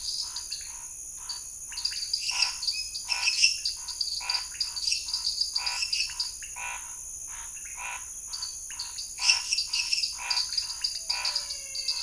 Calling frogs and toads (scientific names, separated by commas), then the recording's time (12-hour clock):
Dendropsophus minutus, Dendropsophus nanus, Leptodactylus podicipinus, Scinax fuscovarius, Physalaemus albonotatus
7:30pm